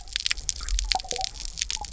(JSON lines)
{"label": "biophony", "recorder": "SoundTrap 300"}